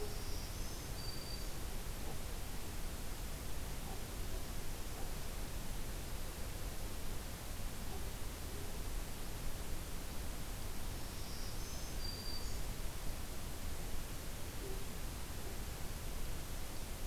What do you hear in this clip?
Black-throated Green Warbler